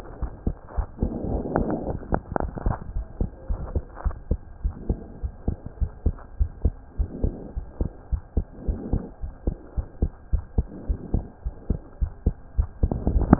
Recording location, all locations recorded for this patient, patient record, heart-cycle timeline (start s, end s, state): pulmonary valve (PV)
aortic valve (AV)+pulmonary valve (PV)+tricuspid valve (TV)+mitral valve (MV)
#Age: Child
#Sex: Male
#Height: 129.0 cm
#Weight: 23.6 kg
#Pregnancy status: False
#Murmur: Absent
#Murmur locations: nan
#Most audible location: nan
#Systolic murmur timing: nan
#Systolic murmur shape: nan
#Systolic murmur grading: nan
#Systolic murmur pitch: nan
#Systolic murmur quality: nan
#Diastolic murmur timing: nan
#Diastolic murmur shape: nan
#Diastolic murmur grading: nan
#Diastolic murmur pitch: nan
#Diastolic murmur quality: nan
#Outcome: Normal
#Campaign: 2015 screening campaign
0.00	3.46	unannotated
3.46	3.62	S1
3.62	3.72	systole
3.72	3.84	S2
3.84	4.04	diastole
4.04	4.16	S1
4.16	4.26	systole
4.26	4.38	S2
4.38	4.62	diastole
4.62	4.76	S1
4.76	4.88	systole
4.88	4.98	S2
4.98	5.22	diastole
5.22	5.32	S1
5.32	5.44	systole
5.44	5.56	S2
5.56	5.78	diastole
5.78	5.90	S1
5.90	6.02	systole
6.02	6.18	S2
6.18	6.38	diastole
6.38	6.52	S1
6.52	6.62	systole
6.62	6.76	S2
6.76	6.98	diastole
6.98	7.12	S1
7.12	7.22	systole
7.22	7.34	S2
7.34	7.56	diastole
7.56	7.66	S1
7.66	7.80	systole
7.80	7.92	S2
7.92	8.12	diastole
8.12	8.22	S1
8.22	8.36	systole
8.36	8.46	S2
8.46	8.66	diastole
8.66	8.78	S1
8.78	8.90	systole
8.90	9.04	S2
9.04	9.24	diastole
9.24	9.32	S1
9.32	9.46	systole
9.46	9.56	S2
9.56	9.76	diastole
9.76	9.86	S1
9.86	9.98	systole
9.98	10.10	S2
10.10	10.30	diastole
10.30	10.44	S1
10.44	10.54	systole
10.54	10.66	S2
10.66	10.88	diastole
10.88	10.98	S1
10.98	11.12	systole
11.12	11.26	S2
11.26	11.46	diastole
11.46	11.54	S1
11.54	11.66	systole
11.66	11.80	S2
11.80	12.00	diastole
12.00	12.12	S1
12.12	12.22	systole
12.22	12.34	S2
12.34	13.39	unannotated